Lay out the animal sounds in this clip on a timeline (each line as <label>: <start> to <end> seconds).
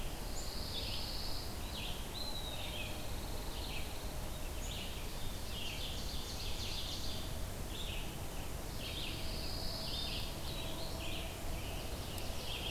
Pine Warbler (Setophaga pinus): 0.0 to 1.5 seconds
Red-eyed Vireo (Vireo olivaceus): 0.0 to 12.7 seconds
Eastern Wood-Pewee (Contopus virens): 2.0 to 2.7 seconds
Pine Warbler (Setophaga pinus): 2.7 to 4.3 seconds
Ovenbird (Seiurus aurocapilla): 5.0 to 7.2 seconds
Pine Warbler (Setophaga pinus): 8.7 to 10.4 seconds
Ovenbird (Seiurus aurocapilla): 11.4 to 12.7 seconds